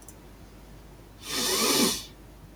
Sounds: Sniff